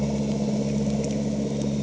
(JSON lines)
{"label": "anthrophony, boat engine", "recorder": "HydroMoth"}